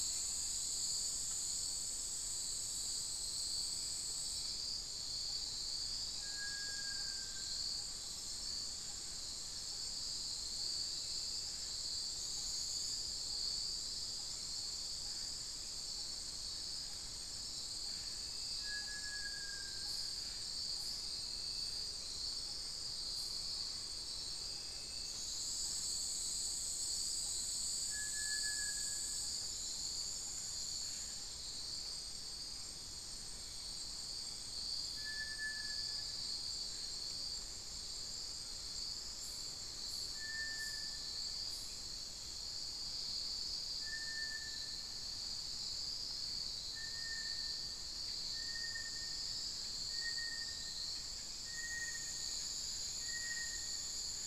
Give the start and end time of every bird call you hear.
[6.05, 7.75] Little Tinamou (Crypturellus soui)
[18.55, 20.45] Little Tinamou (Crypturellus soui)
[27.75, 29.45] Little Tinamou (Crypturellus soui)
[34.85, 54.26] Little Tinamou (Crypturellus soui)

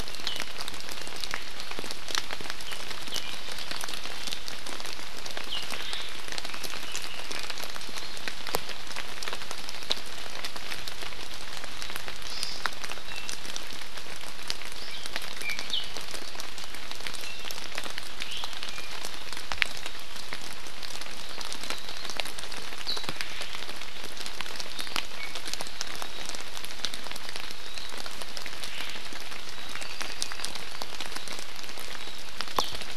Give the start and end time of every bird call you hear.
[5.78, 6.28] Omao (Myadestes obscurus)
[6.38, 7.47] Red-billed Leiothrix (Leiothrix lutea)
[12.28, 12.57] Hawaii Amakihi (Chlorodrepanis virens)
[13.07, 13.38] Iiwi (Drepanis coccinea)
[15.38, 15.68] Iiwi (Drepanis coccinea)
[18.27, 18.48] Iiwi (Drepanis coccinea)
[25.18, 25.38] Iiwi (Drepanis coccinea)
[28.68, 28.98] Omao (Myadestes obscurus)
[29.57, 30.48] Apapane (Himatione sanguinea)

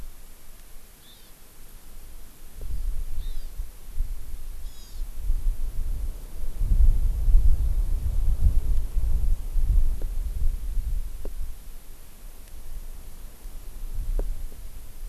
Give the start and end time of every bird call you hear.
[0.97, 1.37] Hawaii Amakihi (Chlorodrepanis virens)
[3.17, 3.57] Hawaii Amakihi (Chlorodrepanis virens)
[4.67, 5.07] Hawaii Amakihi (Chlorodrepanis virens)

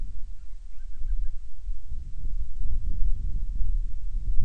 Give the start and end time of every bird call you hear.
[0.20, 1.40] Band-rumped Storm-Petrel (Hydrobates castro)

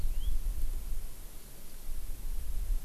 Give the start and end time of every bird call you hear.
[0.00, 0.30] House Finch (Haemorhous mexicanus)

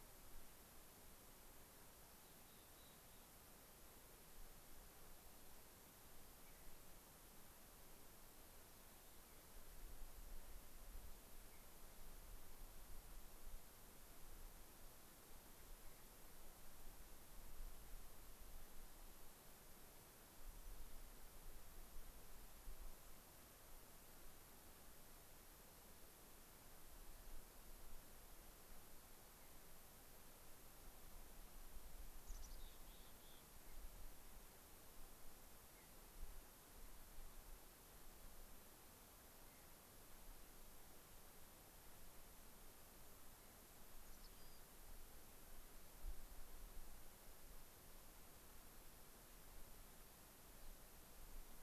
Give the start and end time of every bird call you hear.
[2.34, 3.44] Mountain Chickadee (Poecile gambeli)
[6.24, 6.84] Mountain Bluebird (Sialia currucoides)
[11.34, 11.74] Mountain Bluebird (Sialia currucoides)
[20.54, 20.74] unidentified bird
[29.24, 29.64] Mountain Bluebird (Sialia currucoides)
[32.14, 33.54] Mountain Chickadee (Poecile gambeli)
[33.54, 33.84] Mountain Bluebird (Sialia currucoides)
[35.64, 36.14] Mountain Bluebird (Sialia currucoides)
[39.34, 39.74] Mountain Bluebird (Sialia currucoides)
[43.94, 44.64] Mountain Chickadee (Poecile gambeli)

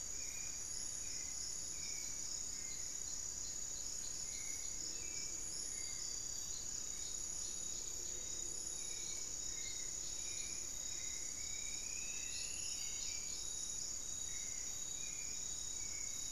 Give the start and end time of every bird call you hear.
[0.00, 16.31] Hauxwell's Thrush (Turdus hauxwelli)
[10.40, 13.40] Striped Woodcreeper (Xiphorhynchus obsoletus)

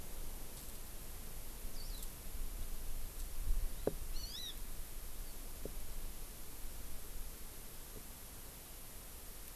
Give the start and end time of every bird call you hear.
[1.67, 2.07] Warbling White-eye (Zosterops japonicus)
[4.07, 4.57] Hawaii Amakihi (Chlorodrepanis virens)

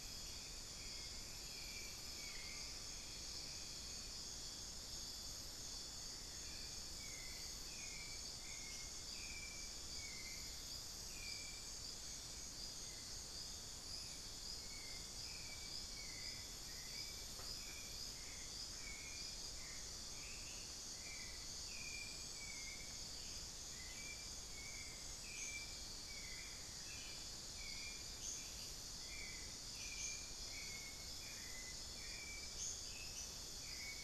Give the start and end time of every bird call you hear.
[0.00, 34.03] unidentified bird
[0.71, 34.03] Hauxwell's Thrush (Turdus hauxwelli)
[1.72, 3.71] Amazonian Pygmy-Owl (Glaucidium hardyi)
[19.21, 20.61] Amazonian Pygmy-Owl (Glaucidium hardyi)
[26.32, 27.11] Amazonian Barred-Woodcreeper (Dendrocolaptes certhia)

